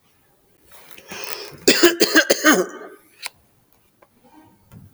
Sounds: Cough